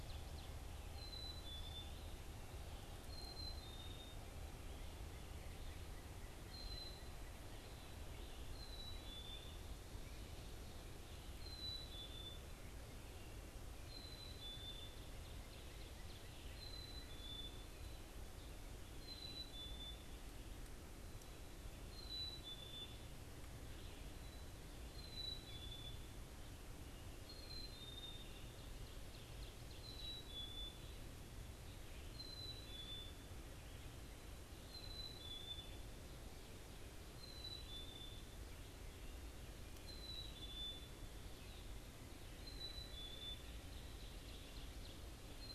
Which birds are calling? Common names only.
Ovenbird, Black-capped Chickadee